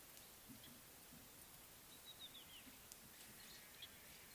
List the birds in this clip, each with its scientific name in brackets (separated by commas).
Red-backed Scrub-Robin (Cercotrichas leucophrys)